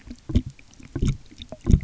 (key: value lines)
label: geophony, waves
recorder: SoundTrap 300